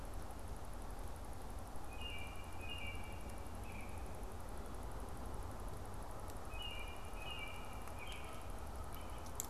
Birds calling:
American Robin (Turdus migratorius)

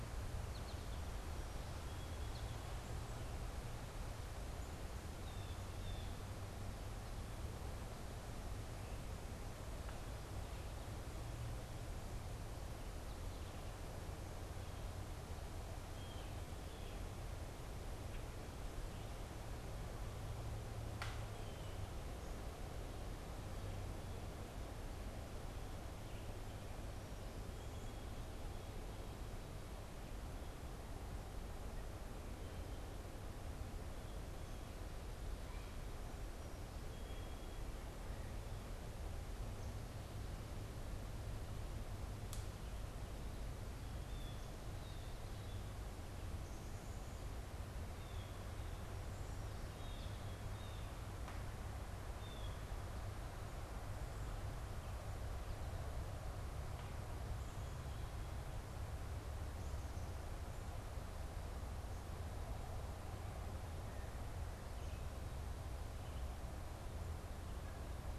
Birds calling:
Song Sparrow (Melospiza melodia), Blue Jay (Cyanocitta cristata), American Goldfinch (Spinus tristis), Red-eyed Vireo (Vireo olivaceus)

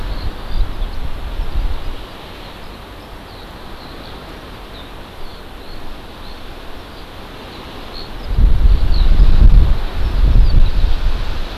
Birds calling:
Eurasian Skylark (Alauda arvensis)

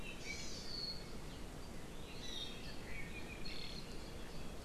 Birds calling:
Hawaii Amakihi (Chlorodrepanis virens), Iiwi (Drepanis coccinea)

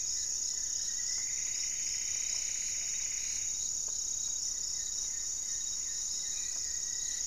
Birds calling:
unidentified bird, Rufous-fronted Antthrush (Formicarius rufifrons), Goeldi's Antbird (Akletos goeldii), Plumbeous Antbird (Myrmelastes hyperythrus), Black-faced Antthrush (Formicarius analis), Hauxwell's Thrush (Turdus hauxwelli)

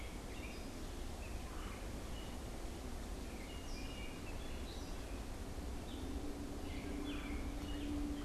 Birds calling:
Red-bellied Woodpecker (Melanerpes carolinus), American Robin (Turdus migratorius), Gray Catbird (Dumetella carolinensis)

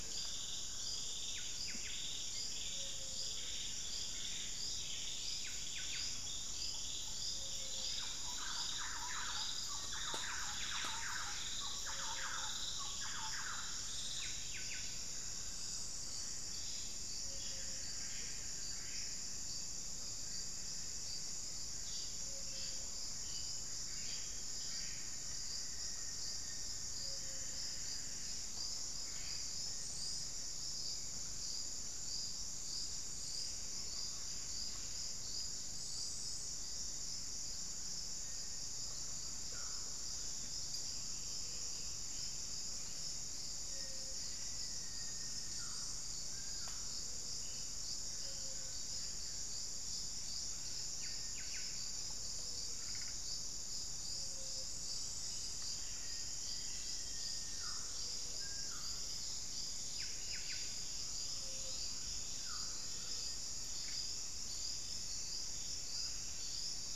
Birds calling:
Thrush-like Wren (Campylorhynchus turdinus), Ruddy Quail-Dove (Geotrygon montana), Black-faced Antthrush (Formicarius analis), Cinereous Tinamou (Crypturellus cinereus), Buff-breasted Wren (Cantorchilus leucotis), Little Tinamou (Crypturellus soui), unidentified bird

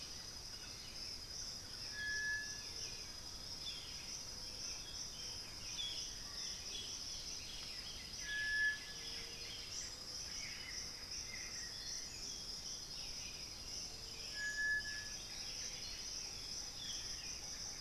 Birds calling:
Thrush-like Wren (Campylorhynchus turdinus), Black-billed Thrush (Turdus ignobilis), Chestnut-winged Foliage-gleaner (Dendroma erythroptera), Buff-throated Woodcreeper (Xiphorhynchus guttatus), White-winged Becard (Pachyramphus polychopterus), Russet-backed Oropendola (Psarocolius angustifrons), Buff-throated Saltator (Saltator maximus), Boat-billed Flycatcher (Megarynchus pitangua)

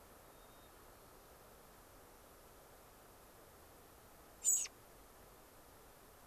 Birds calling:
American Robin (Turdus migratorius), White-crowned Sparrow (Zonotrichia leucophrys)

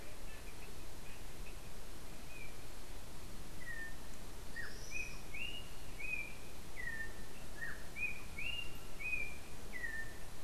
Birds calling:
Tropical Kingbird (Tyrannus melancholicus), Yellow-backed Oriole (Icterus chrysater)

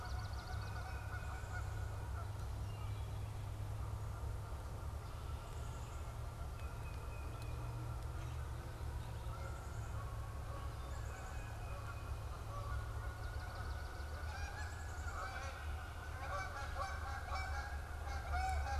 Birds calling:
Canada Goose (Branta canadensis), Wood Thrush (Hylocichla mustelina), Tufted Titmouse (Baeolophus bicolor), Swamp Sparrow (Melospiza georgiana), Black-capped Chickadee (Poecile atricapillus)

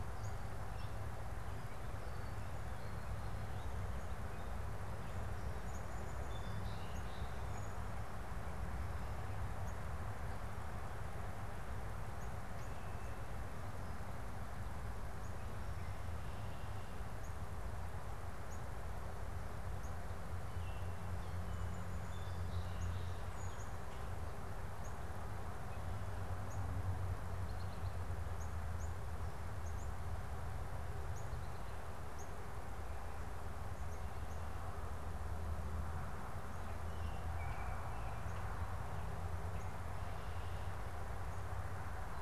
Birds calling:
Northern Cardinal (Cardinalis cardinalis), Song Sparrow (Melospiza melodia), Red-winged Blackbird (Agelaius phoeniceus), Baltimore Oriole (Icterus galbula)

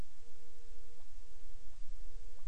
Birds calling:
Hawaiian Petrel (Pterodroma sandwichensis)

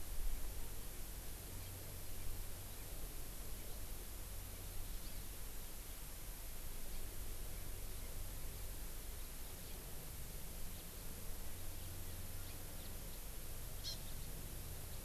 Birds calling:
Hawaii Amakihi (Chlorodrepanis virens), House Finch (Haemorhous mexicanus)

